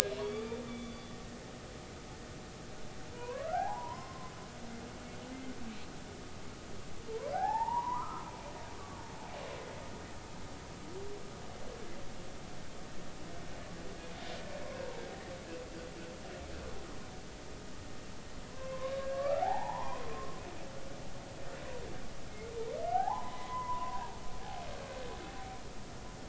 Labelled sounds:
0.2	1.1	humpback whale, 0.90 to 4.7 kHz
3.1	4.3	humpback whale, 0.80 to 5.3 kHz
7.1	8.3	humpback whale, 0.80 to 2.0 kHz
18.5	20.4	humpback whale, 0.80 to 1.9 kHz
22.9	24.0	humpback whale, 0.80 to 2.1 kHz

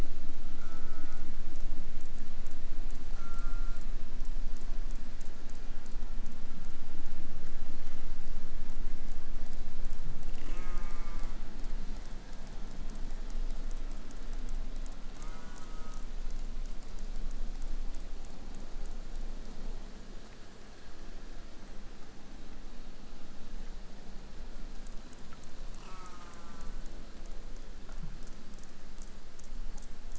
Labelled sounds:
0.6	1.3	killer whale, southern resident, J pod, call S04, 0.27 to 8.0 kHz
3.1	4.0	killer whale, southern resident, J pod, call S04, 0 to 3.0 kHz
10.2	11.4	killer whale, southern resident, J pod, call S04, 0 to 3.5 kHz
15.1	16.1	killer whale, southern resident, J pod, call S04, 0 to 3.0 kHz
25.7	26.9	killer whale, southern resident, J pod, call S04, 0.42 to 8.0 kHz

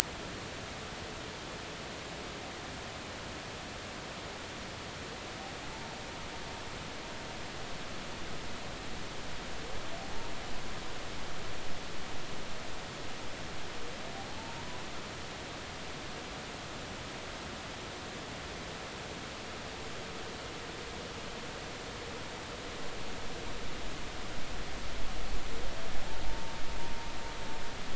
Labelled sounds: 14.3	14.6	humpback whale, 0.80 to 0.96 kHz
26.3	26.5	humpback whale, 0.86 to 0.96 kHz

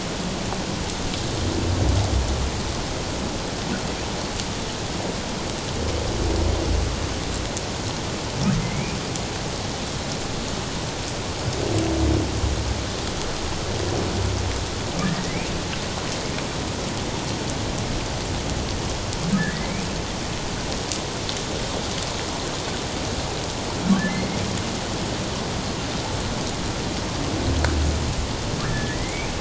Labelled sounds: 8.6	8.9	humpback whale, 2.0 to 2.5 kHz
15.0	15.5	humpback whale, 1.6 to 2.5 kHz
19.3	19.7	humpback whale, 1.5 to 2.1 kHz
24.1	24.4	humpback whale, 2.0 to 2.2 kHz
28.6	29.3	humpback whale, 1.6 to 2.6 kHz

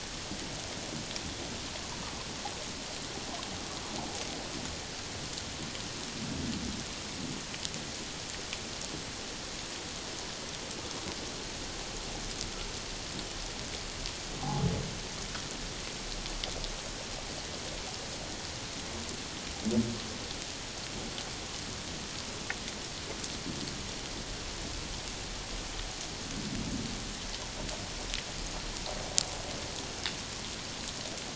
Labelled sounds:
14.4	14.7	humpback whale, 0.78 to 0.91 kHz

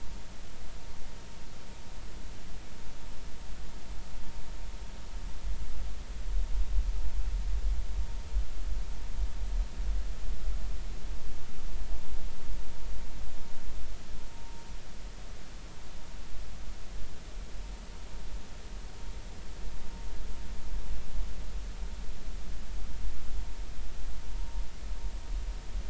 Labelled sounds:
14.4	14.6	vessel noise, 0.90 to 0.96 kHz

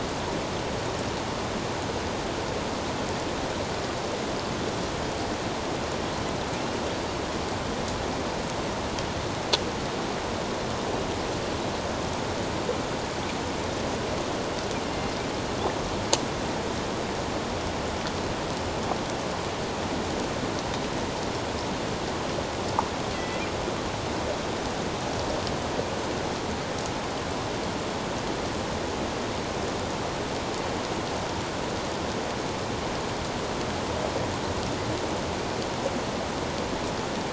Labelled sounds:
23.1	23.4	killer whale, northern resident, A clan, AB subclan, 1.8 to 2.8 kHz

